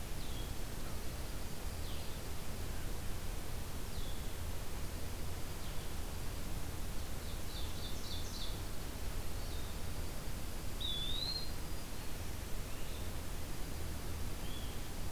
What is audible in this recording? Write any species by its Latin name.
Vireo solitarius, Junco hyemalis, Seiurus aurocapilla, Contopus virens